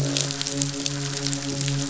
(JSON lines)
{"label": "biophony, midshipman", "recorder": "SoundTrap 500"}